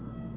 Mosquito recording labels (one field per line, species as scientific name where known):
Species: Aedes albopictus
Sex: male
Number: one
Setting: insect culture